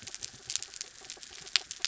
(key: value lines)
label: anthrophony, mechanical
recorder: SoundTrap 300